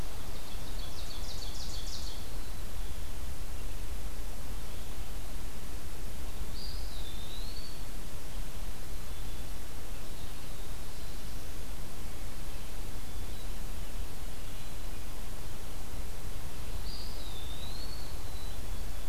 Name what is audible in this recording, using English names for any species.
Ovenbird, Black-capped Chickadee, Eastern Wood-Pewee, Black-throated Blue Warbler